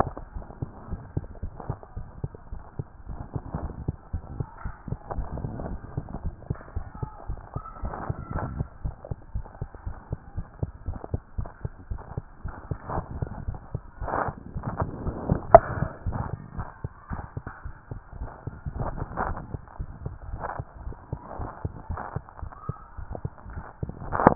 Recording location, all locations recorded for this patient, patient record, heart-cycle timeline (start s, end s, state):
tricuspid valve (TV)
aortic valve (AV)+pulmonary valve (PV)+tricuspid valve (TV)+mitral valve (MV)
#Age: Child
#Sex: Male
#Height: nan
#Weight: nan
#Pregnancy status: False
#Murmur: Present
#Murmur locations: mitral valve (MV)+pulmonary valve (PV)+tricuspid valve (TV)
#Most audible location: mitral valve (MV)
#Systolic murmur timing: Holosystolic
#Systolic murmur shape: Plateau
#Systolic murmur grading: I/VI
#Systolic murmur pitch: Low
#Systolic murmur quality: Blowing
#Diastolic murmur timing: nan
#Diastolic murmur shape: nan
#Diastolic murmur grading: nan
#Diastolic murmur pitch: nan
#Diastolic murmur quality: nan
#Outcome: Normal
#Campaign: 2014 screening campaign
0.14	0.32	diastole
0.32	0.46	S1
0.46	0.58	systole
0.58	0.72	S2
0.72	0.90	diastole
0.90	1.04	S1
1.04	1.14	systole
1.14	1.24	S2
1.24	1.40	diastole
1.40	1.54	S1
1.54	1.66	systole
1.66	1.80	S2
1.80	1.96	diastole
1.96	2.08	S1
2.08	2.18	systole
2.18	2.30	S2
2.30	2.48	diastole
2.48	2.62	S1
2.62	2.78	systole
2.78	2.86	S2
2.86	3.06	diastole
3.06	3.20	S1
3.20	3.34	systole
3.34	3.44	S2
3.44	3.62	diastole
3.62	3.76	S1
3.76	3.86	systole
3.86	3.98	S2
3.98	4.10	diastole
4.10	4.22	S1
4.22	4.34	systole
4.34	4.46	S2
4.46	4.62	diastole
4.62	4.74	S1
4.74	4.88	systole
4.88	4.98	S2
4.98	5.12	diastole
5.12	5.30	S1
5.30	5.42	systole
5.42	5.52	S2
5.52	5.64	diastole
5.64	5.78	S1
5.78	5.94	systole
5.94	6.06	S2
6.06	6.22	diastole
6.22	6.34	S1
6.34	6.46	systole
6.46	6.58	S2
6.58	6.74	diastole
6.74	6.88	S1
6.88	7.00	systole
7.00	7.10	S2
7.10	7.26	diastole
7.26	7.42	S1
7.42	7.52	systole
7.52	7.64	S2
7.64	7.80	diastole
7.80	7.94	S1
7.94	8.06	systole
8.06	8.16	S2
8.16	8.32	diastole
8.32	8.50	S1
8.50	8.58	systole
8.58	8.68	S2
8.68	8.84	diastole
8.84	8.96	S1
8.96	9.08	systole
9.08	9.18	S2
9.18	9.32	diastole
9.32	9.46	S1
9.46	9.60	systole
9.60	9.68	S2
9.68	9.84	diastole
9.84	9.98	S1
9.98	10.10	systole
10.10	10.20	S2
10.20	10.34	diastole
10.34	10.46	S1
10.46	10.60	systole
10.60	10.72	S2
10.72	10.86	diastole
10.86	11.00	S1
11.00	11.12	systole
11.12	11.22	S2
11.22	11.38	diastole
11.38	11.50	S1
11.50	11.64	systole
11.64	11.72	S2
11.72	11.86	diastole
11.86	12.02	S1
12.02	12.16	systole
12.16	12.24	S2
12.24	12.42	diastole
12.42	12.56	S1
12.56	12.66	systole
12.66	12.78	S2
12.78	12.90	diastole
12.90	13.06	S1
13.06	13.16	systole
13.16	13.30	S2
13.30	13.44	diastole
13.44	13.60	S1
13.60	13.72	systole
13.72	13.82	S2
13.82	14.00	diastole
14.00	14.12	S1
14.12	14.26	systole
14.26	14.36	S2
14.36	14.54	diastole
14.54	14.64	S1
14.64	14.76	systole
14.76	14.90	S2
14.90	15.02	diastole
15.02	15.16	S1
15.16	15.24	systole
15.24	15.40	S2
15.40	15.52	diastole
15.52	15.68	S1
15.68	15.80	systole
15.80	15.94	S2
15.94	16.06	diastole
16.06	16.24	S1
16.24	16.34	systole
16.34	16.42	S2
16.42	16.56	diastole
16.56	16.66	S1
16.66	16.80	systole
16.80	16.92	S2
16.92	17.10	diastole
17.10	17.24	S1
17.24	17.36	systole
17.36	17.46	S2
17.46	17.64	diastole
17.64	17.74	S1
17.74	17.92	systole
17.92	18.02	S2
18.02	18.18	diastole
18.18	18.30	S1
18.30	18.46	systole
18.46	18.58	S2
18.58	18.74	diastole
18.74	18.90	S1
18.90	18.96	systole
18.96	19.08	S2
19.08	19.22	diastole
19.22	19.38	S1
19.38	19.52	systole
19.52	19.62	S2
19.62	19.78	diastole
19.78	19.88	S1
19.88	20.00	systole
20.00	20.14	S2
20.14	20.30	diastole
20.30	20.46	S1
20.46	20.58	systole
20.58	20.66	S2
20.66	20.82	diastole
20.82	20.94	S1
20.94	21.08	systole
21.08	21.20	S2
21.20	21.38	diastole
21.38	21.50	S1
21.50	21.60	systole
21.60	21.74	S2
21.74	21.88	diastole
21.88	22.00	S1
22.00	22.12	systole
22.12	22.24	S2
22.24	22.40	diastole
22.40	22.52	S1
22.52	22.68	systole
22.68	22.78	S2
22.78	22.98	diastole
22.98	23.08	S1
23.08	23.22	systole
23.22	23.34	S2
23.34	23.50	diastole
23.50	23.64	S1
23.64	23.78	systole
23.78	23.90	S2
23.90	24.02	diastole
24.02	24.18	S1
24.18	24.24	systole
24.24	24.35	S2